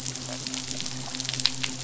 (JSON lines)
{"label": "biophony", "recorder": "SoundTrap 500"}
{"label": "biophony, midshipman", "recorder": "SoundTrap 500"}